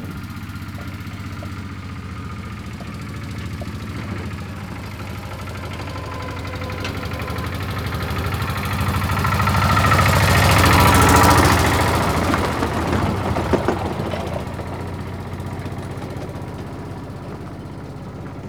Is the beginning the loudest part?
no